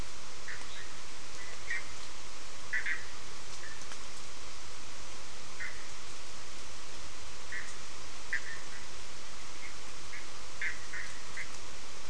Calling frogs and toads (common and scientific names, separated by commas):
Bischoff's tree frog (Boana bischoffi)